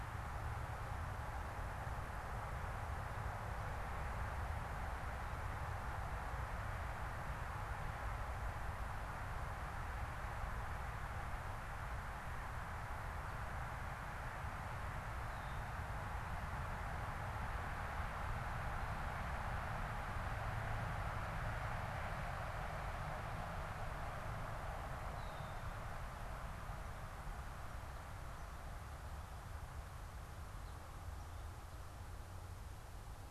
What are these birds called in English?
Red-winged Blackbird